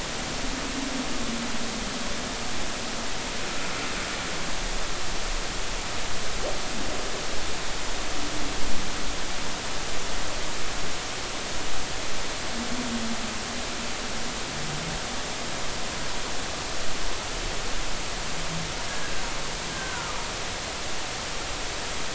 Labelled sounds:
19.7	20.1	humpback whale, 1.3 to 1.7 kHz

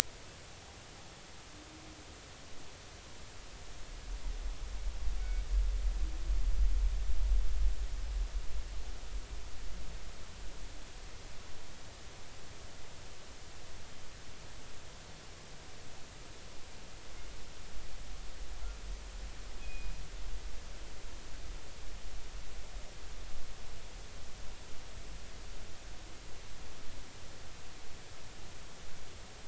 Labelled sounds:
5.2	5.5	killer whale, northern resident, G clan, call N24ii, 2.2 to 2.4 kHz
19.6	19.9	killer whale, northern resident, G clan, call N24ii, 2.4 to 2.6 kHz

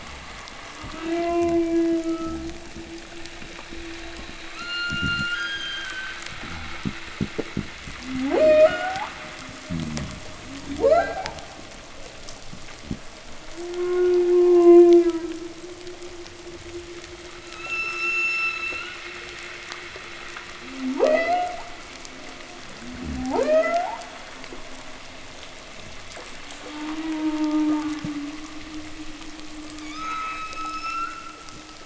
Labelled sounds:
0.6	2.7	humpback whale, moan, 0.20 to 3.3 kHz
0.7	2.6	fish, groan, 0 to 0.32 kHz
4.4	6.3	humpback whale, 1.2 to 8.0 kHz
4.7	5.3	fish, knock and groan, 0.02 to 0.49 kHz
6.2	8.8	fish, knock and groan, 0.02 to 0.65 kHz
7.9	9.2	humpback whale, ascending moan, 0.18 to 7.6 kHz
9.5	11.6	fish, groan, 0.01 to 0.38 kHz
10.4	11.5	humpback whale, 0.17 to 4.8 kHz
12.8	13.1	fish, knock, 0.01 to 0.44 kHz
13.3	15.6	humpback whale, moan, 0.17 to 3.6 kHz
17.3	19.0	humpback whale, 1.2 to 8.0 kHz
20.4	21.7	humpback whale, ascending moan, 0.17 to 6.8 kHz
22.6	24.1	humpback whale, ascending moan, 0.17 to 8.0 kHz
22.8	23.4	fish, groan, 0.02 to 0.37 kHz
26.3	28.7	humpback whale, moan, 0.14 to 2.1 kHz
27.9	28.1	fish, knock, 0.02 to 0.30 kHz
29.7	31.3	humpback whale, 1.1 to 8.0 kHz

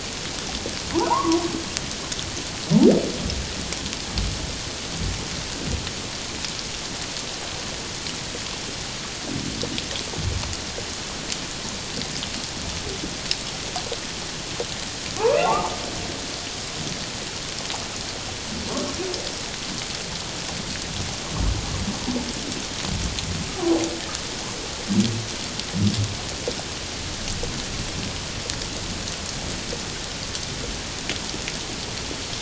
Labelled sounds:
0.9	1.4	humpback whale, 0.78 to 1.2 kHz
15.2	15.7	humpback whale, 0.81 to 2.8 kHz
23.5	23.8	humpback whale, 0.94 to 1.3 kHz

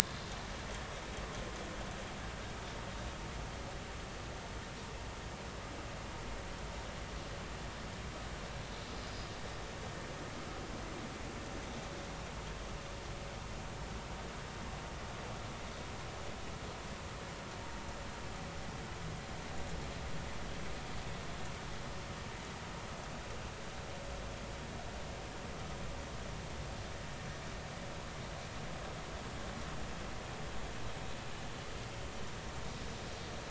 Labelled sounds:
1.0	1.2	vessel noise, 3.5 to 3.6 kHz

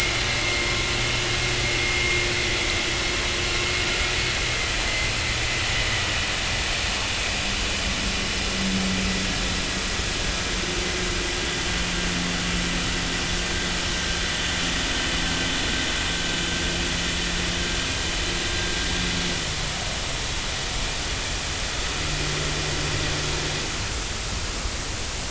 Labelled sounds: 4.9	5.1	vessel noise, 2.0 to 2.1 kHz

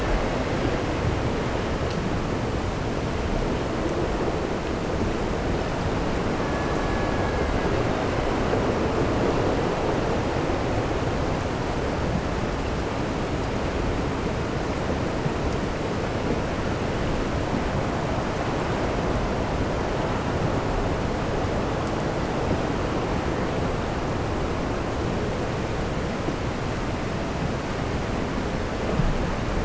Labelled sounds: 6.2	8.2	killer whale, Bigg's (transient), AT1 transient, 1.4 to 4.6 kHz

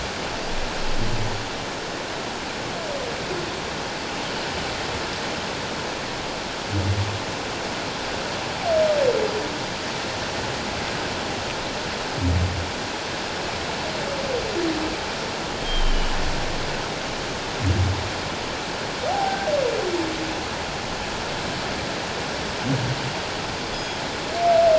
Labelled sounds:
15.6	16.2	humpback whale, 2.8 to 3.3 kHz
19.1	19.4	humpback whale, 0.78 to 0.91 kHz
23.7	24.0	humpback whale, 3.2 to 3.5 kHz

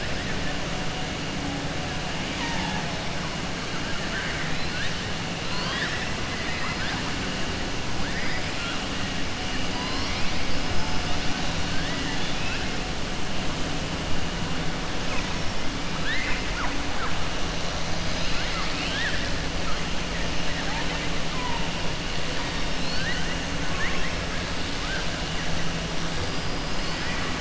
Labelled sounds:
2.3	2.9	killer whale, southern resident, 0.81 to 6.4 kHz
4.0	4.5	killer whale, southern resident, 0.97 to 2.4 kHz
5.4	7.0	killer whale, southern resident, 0.82 to 5.5 kHz
11.7	12.6	killer whale, southern resident, 1.4 to 4.2 kHz
15.9	16.8	killer whale, southern resident, 0.78 to 4.0 kHz
18.0	19.3	killer whale, southern resident, 1.2 to 5.3 kHz
23.6	24.1	killer whale, southern resident, 1.1 to 3.3 kHz

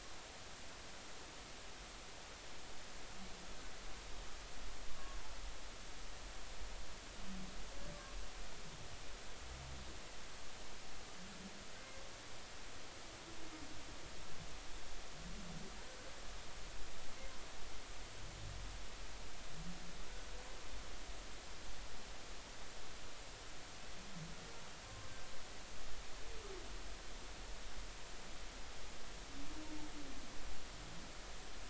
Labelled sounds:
24.8	25.1	humpback whale, 1.0 to 1.1 kHz

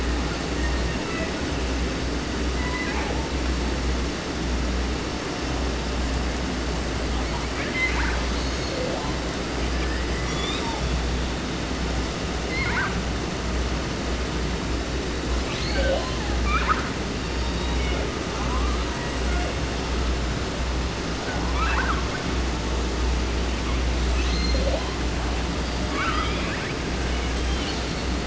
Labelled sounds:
0.4	1.5	killer whale, 0.42 to 4.7 kHz
2.5	3.4	killer whale, southern resident, J pod, call S01, 0.30 to 5.6 kHz
7.1	8.3	killer whale, 0.30 to 6.6 kHz
8.3	9.2	killer whale, southern resident, J pod, call S44, 0.30 to 8.0 kHz
9.7	10.9	killer whale, southern resident, J pod, call S01, 0.30 to 8.0 kHz
12.4	13.0	killer whale, 0.30 to 5.2 kHz
15.4	17.0	killer whale, 0.38 to 8.0 kHz
17.1	18.1	killer whale, southern resident, J pod, call S01, 0.30 to 6.4 kHz
18.1	19.7	killer whale, 0.27 to 2.4 kHz
21.2	22.2	killer whale, 0.59 to 4.5 kHz
23.4	25.2	killer whale, 0.30 to 8.0 kHz
25.8	26.8	killer whale, 0.30 to 5.5 kHz
27.0	28.2	killer whale, 1.0 to 4.9 kHz

